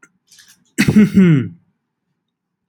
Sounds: Throat clearing